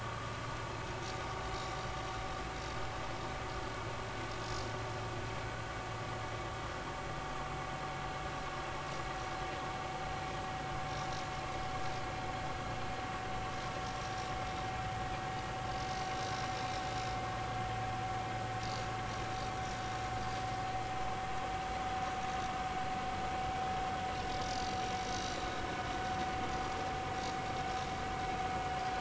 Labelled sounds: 25.2	25.5	vessel noise, 3.7 to 4.0 kHz

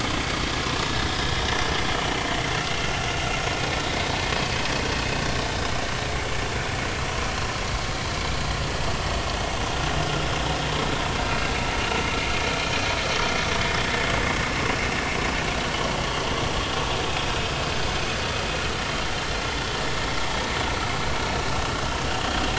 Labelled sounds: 2.7	3.1	vessel noise, 2.6 to 2.9 kHz

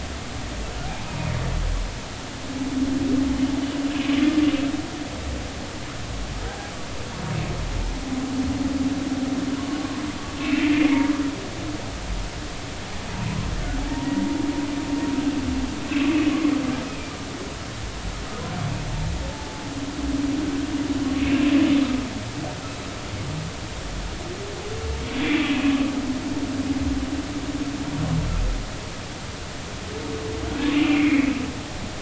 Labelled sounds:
6.5	6.7	humpback whale, 0.80 to 0.86 kHz
9.8	10.0	humpback whale, 0.99 to 1.2 kHz
19.3	19.7	humpback whale, 0.83 to 0.90 kHz
21.2	21.5	humpback whale, 2.6 to 2.8 kHz
30.7	31.4	humpback whale, 1.9 to 3.0 kHz

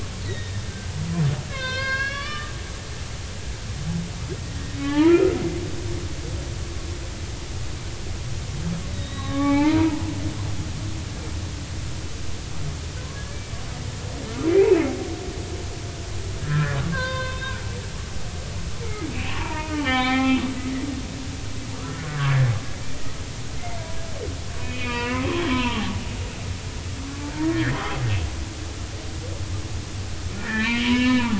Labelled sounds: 0.3	0.6	humpback whale, 1.8 to 3.9 kHz
1.5	2.5	humpback whale, 0.96 to 5.7 kHz
4.4	5.4	humpback whale, 0.83 to 3.1 kHz
8.9	10.1	humpback whale, 0.80 to 3.9 kHz
13.1	13.4	humpback whale, 1.6 to 1.8 kHz
14.4	14.9	humpback whale, 2.3 to 2.7 kHz
16.4	17.6	humpback whale, 0.96 to 3.8 kHz
19.4	20.5	humpback whale, 0.80 to 3.7 kHz
21.7	22.5	humpback whale, 1.1 to 1.8 kHz
23.6	25.9	humpback whale, 0.80 to 3.5 kHz
27.0	27.8	humpback whale, 0.83 to 2.0 kHz
30.4	31.3	humpback whale, 0.80 to 3.9 kHz

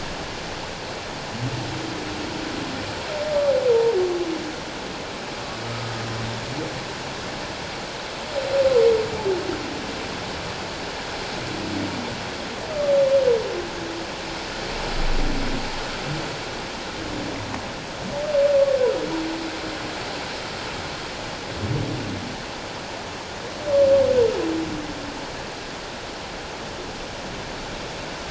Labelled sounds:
3.7	4.0	humpback whale, 0.88 to 0.97 kHz

